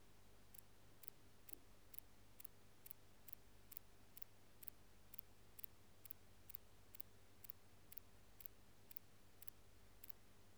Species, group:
Antaxius spinibrachius
Orthoptera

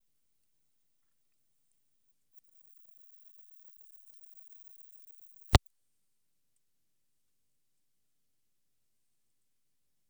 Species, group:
Odontura maroccana
Orthoptera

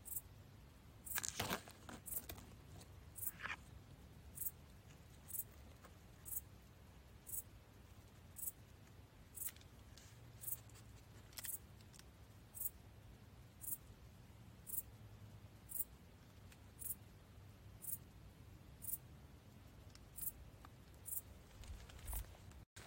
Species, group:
Pholidoptera griseoaptera
Orthoptera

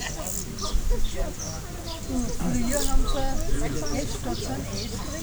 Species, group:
Chorthippus brunneus
Orthoptera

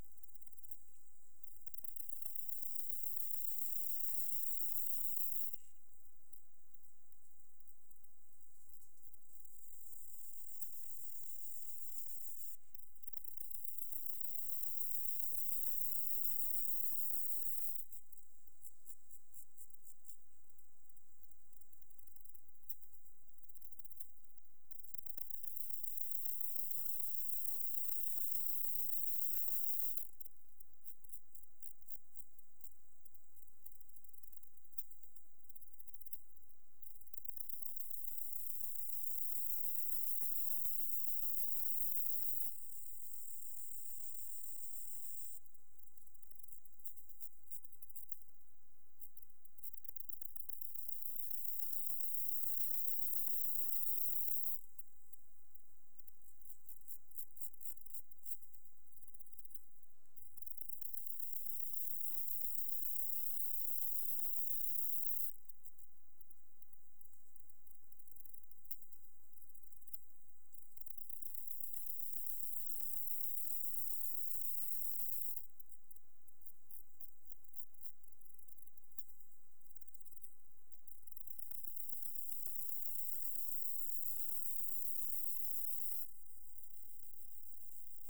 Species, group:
Gomphocerippus rufus
Orthoptera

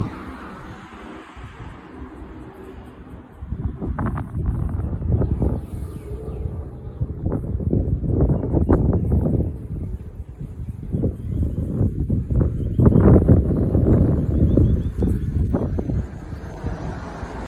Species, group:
Yoyetta celis
Cicadidae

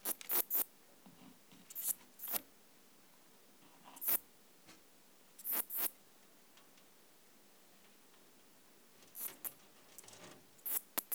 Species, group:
Barbitistes yersini
Orthoptera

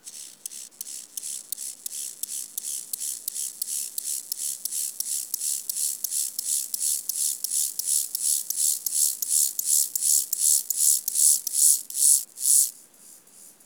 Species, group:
Chorthippus mollis
Orthoptera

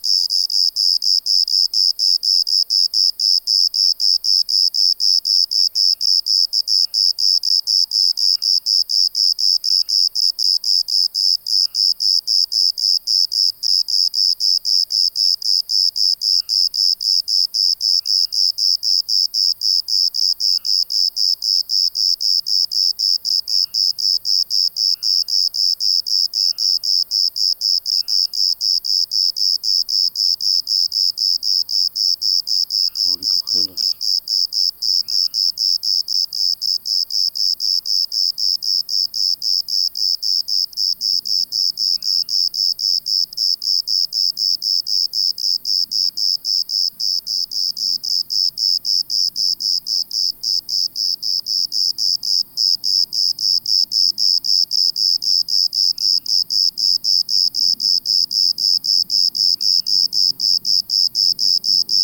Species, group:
Eumodicogryllus bordigalensis
Orthoptera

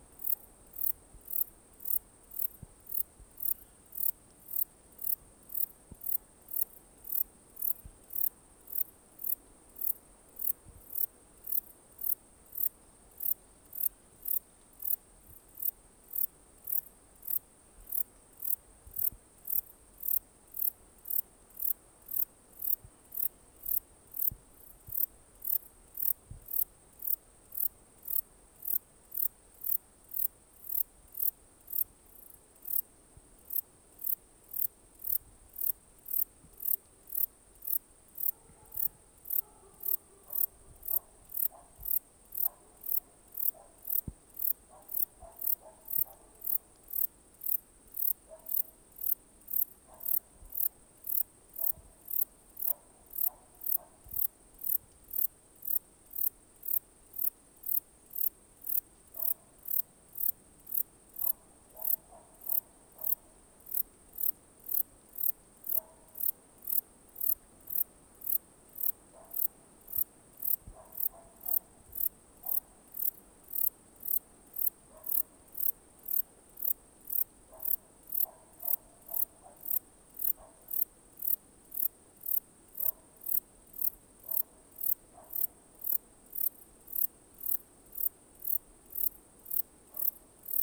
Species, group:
Zeuneriana abbreviata
Orthoptera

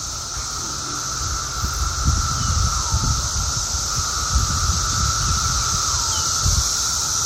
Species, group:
Magicicada septendecim
Cicadidae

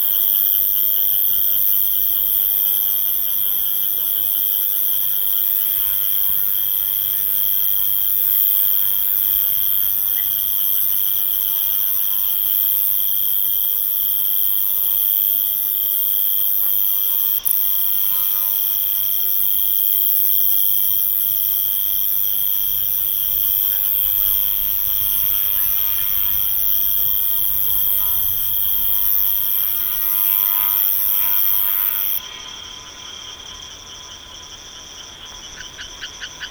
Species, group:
Ruspolia nitidula
Orthoptera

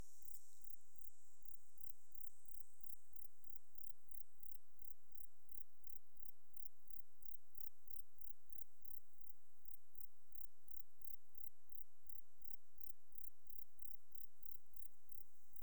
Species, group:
Platycleis sabulosa
Orthoptera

